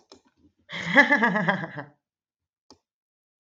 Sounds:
Laughter